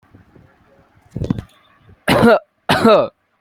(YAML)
expert_labels:
- quality: good
  cough_type: dry
  dyspnea: false
  wheezing: false
  stridor: false
  choking: false
  congestion: false
  nothing: true
  diagnosis: healthy cough
  severity: pseudocough/healthy cough
age: 18
gender: male
respiratory_condition: false
fever_muscle_pain: true
status: symptomatic